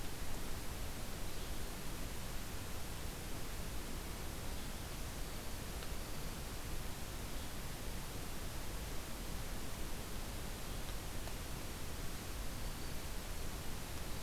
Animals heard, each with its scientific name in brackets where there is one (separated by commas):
Black-throated Green Warbler (Setophaga virens)